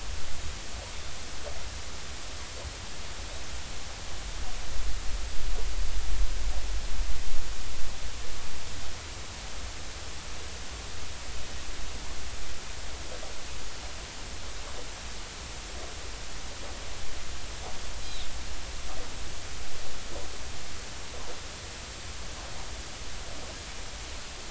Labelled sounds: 18.0	18.3	Pacific white-sided dolphin, 3.4 to 4.1 kHz

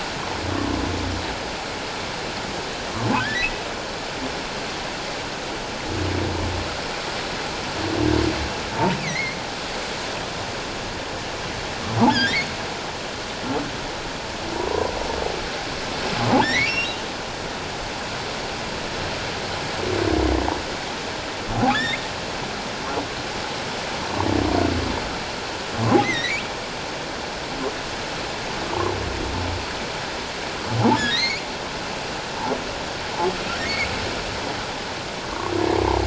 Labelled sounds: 3.3	3.6	humpback whale, 1.9 to 2.1 kHz
9.0	9.4	humpback whale, 1.8 to 2.7 kHz
12.1	12.5	humpback whale, 1.5 to 3.5 kHz
16.4	17.0	humpback whale, 1.5 to 4.2 kHz
21.7	22.0	humpback whale, 3.2 to 3.8 kHz
26.0	26.4	humpback whale, 1.8 to 4.2 kHz
31.0	31.4	humpback whale, 1.6 to 4.3 kHz

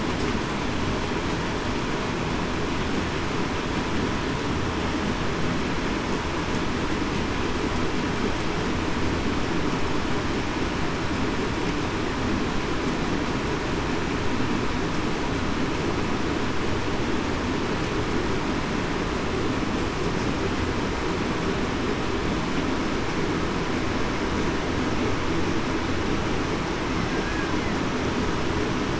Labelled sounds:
27.1	27.5	killer whale, Bigg's (transient), 1.5 to 1.7 kHz

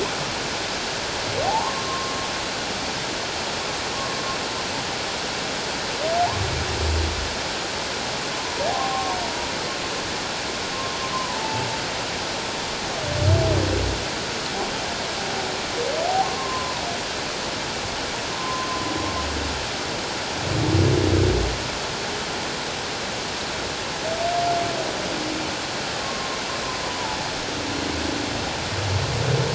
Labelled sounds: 1.5	2.2	humpback whale, 0.78 to 1.2 kHz
8.4	9.2	humpback whale, 0.78 to 1.1 kHz
11.1	11.7	humpback whale, 0.78 to 1.1 kHz
16.0	16.8	humpback whale, 0.78 to 1.1 kHz
18.4	18.8	humpback whale, 0.97 to 1.1 kHz
26.0	26.4	humpback whale, 0.94 to 1.1 kHz
26.9	27.2	humpback whale, 0.81 to 1.0 kHz

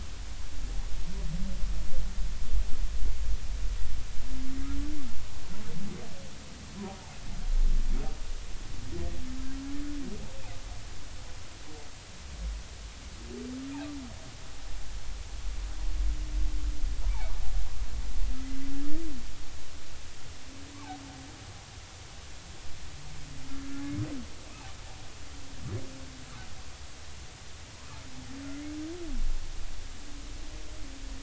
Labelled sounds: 6.8	7.1	humpback whale, 0.80 to 1.1 kHz

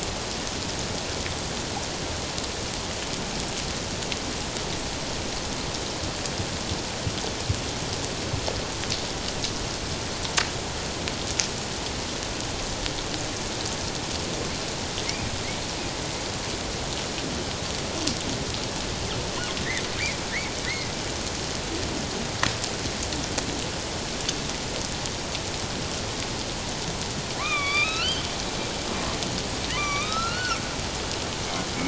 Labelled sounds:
20.6	20.9	humpback whale, 1.8 to 2.2 kHz
27.4	28.3	humpback whale, 1.0 to 4.9 kHz
29.7	30.6	humpback whale, 0.97 to 6.1 kHz

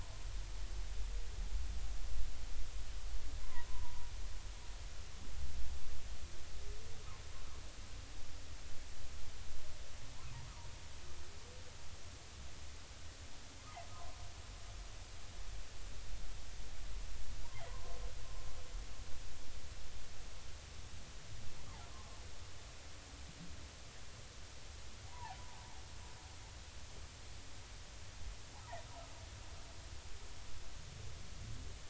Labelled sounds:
3.4	4.1	humpback whale, 0.90 to 1.2 kHz
13.6	13.8	humpback whale, 0.80 to 1.3 kHz
17.6	18.0	humpback whale, 0.93 to 1.1 kHz
21.9	22.2	humpback whale, 0.80 to 1.2 kHz
25.1	25.4	humpback whale, 0.80 to 1.2 kHz

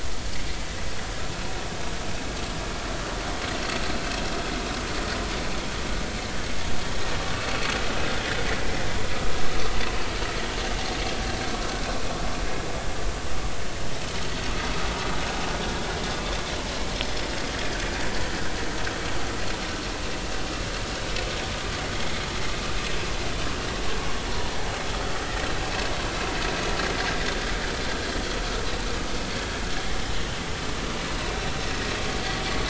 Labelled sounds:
17.6	17.9	vessel noise, 1.5 to 1.8 kHz
24.3	24.5	vessel noise, 0.90 to 1.1 kHz

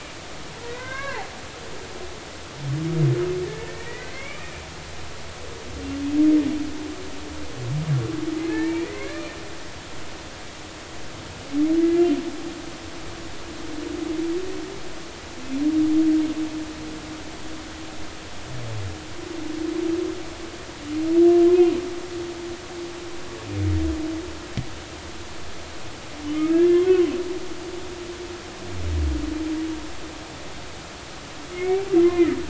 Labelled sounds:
0.6	1.3	humpback whale, 0.80 to 2.3 kHz
3.4	4.4	humpback whale, 1.7 to 2.4 kHz
8.5	9.2	humpback whale, 0.83 to 2.5 kHz
11.8	12.1	humpback whale, 2.0 to 2.1 kHz
21.5	21.8	humpback whale, 2.4 to 2.6 kHz
26.3	26.9	humpback whale, 1.2 to 2.9 kHz
31.5	32.4	humpback whale, 0.99 to 2.4 kHz

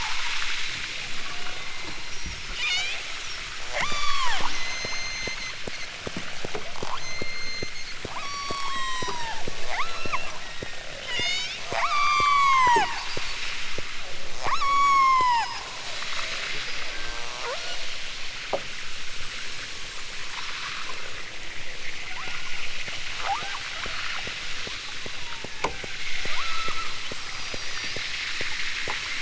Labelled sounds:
1.2	2.3	killer whale, southern Alaska resident, 0.50 to 5.5 kHz
2.6	3.0	killer whale, southern Alaska resident, 1.1 to 8.0 kHz
3.7	5.5	killer whale, southern Alaska resident, 0.37 to 8.0 kHz
6.8	9.3	killer whale, southern Alaska resident, 0.32 to 8.0 kHz
9.6	12.9	killer whale, southern Alaska resident, 0.28 to 8.0 kHz
14.4	15.6	killer whale, southern Alaska resident, 0.28 to 8.0 kHz
17.4	17.9	killer whale, southern Alaska resident, 0.32 to 1.7 kHz
22.1	22.7	killer whale, southern Alaska resident, 0.46 to 1.7 kHz
23.2	24.2	killer whale, southern Alaska resident, 0.30 to 1.9 kHz
24.7	25.5	killer whale, southern Alaska resident, 0.46 to 1.4 kHz
26.3	27.0	killer whale, southern Alaska resident, 0.43 to 1.6 kHz

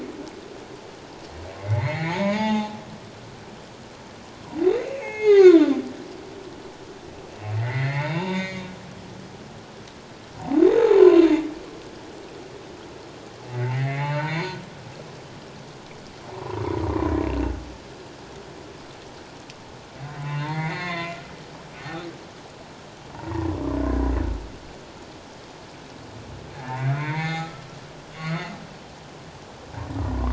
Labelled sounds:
1.6	2.7	humpback whale, 0.81 to 6.8 kHz
4.8	5.8	humpback whale, 0.78 to 6.8 kHz
7.6	8.6	humpback whale, 0.81 to 6.8 kHz
10.6	10.9	humpback whale, 3.5 to 3.8 kHz
13.5	14.6	humpback whale, 0.78 to 4.4 kHz
20.2	21.2	humpback whale, 0.84 to 4.4 kHz
23.1	24.0	humpback whale, 0.84 to 1.9 kHz
26.7	27.6	humpback whale, 0.78 to 4.4 kHz
28.2	28.5	humpback whale, 1.9 to 4.5 kHz

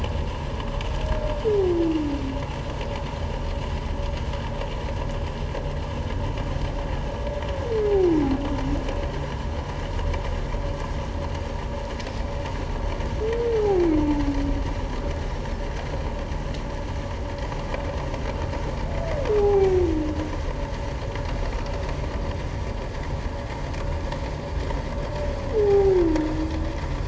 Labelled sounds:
13.5	13.8	humpback whale, 0.78 to 0.88 kHz
19.4	19.8	humpback whale, 0.78 to 0.88 kHz
25.6	26.0	humpback whale, 0.78 to 0.88 kHz

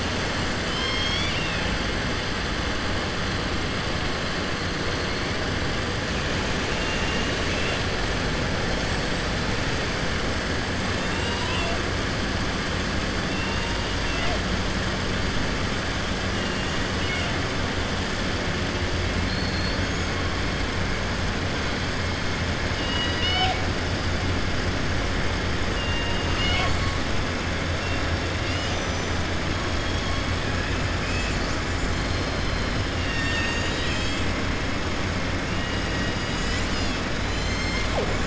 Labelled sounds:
0.6	1.6	killer whale, southern resident, 2.1 to 7.0 kHz
11.0	11.7	killer whale, southern resident, 0.69 to 5.7 kHz
16.9	17.3	killer whale, southern resident, 1.5 to 3.7 kHz
22.7	23.6	killer whale, southern resident, 0.72 to 5.8 kHz
25.7	26.9	killer whale, southern resident, 0.73 to 7.5 kHz

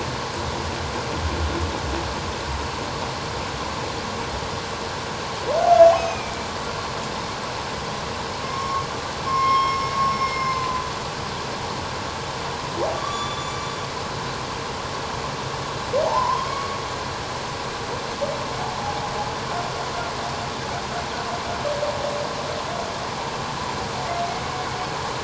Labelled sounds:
5.9	6.3	humpback whale, 2.3 to 6.4 kHz
8.4	8.8	humpback whale, 1.0 to 1.2 kHz
9.3	10.8	humpback whale, 0.97 to 5.5 kHz
13.0	13.5	humpback whale, 1.1 to 7.1 kHz
16.0	16.5	humpback whale, 0.78 to 1.1 kHz

